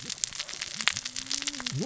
{"label": "biophony, cascading saw", "recorder": "SoundTrap 600 or HydroMoth"}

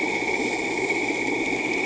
{"label": "anthrophony, boat engine", "recorder": "HydroMoth"}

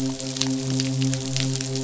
{"label": "biophony, midshipman", "recorder": "SoundTrap 500"}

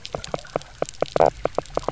{"label": "biophony, knock croak", "recorder": "SoundTrap 300"}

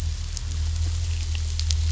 {"label": "anthrophony, boat engine", "recorder": "SoundTrap 500"}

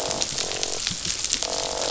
{"label": "biophony, croak", "recorder": "SoundTrap 500"}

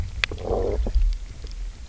{"label": "biophony, low growl", "recorder": "SoundTrap 300"}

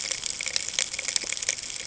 {"label": "ambient", "recorder": "HydroMoth"}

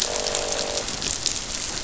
{"label": "biophony, croak", "recorder": "SoundTrap 500"}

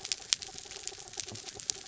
{"label": "anthrophony, mechanical", "recorder": "SoundTrap 300"}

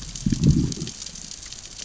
{"label": "biophony, growl", "recorder": "SoundTrap 600 or HydroMoth"}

